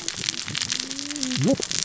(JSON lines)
{"label": "biophony, cascading saw", "recorder": "SoundTrap 600 or HydroMoth"}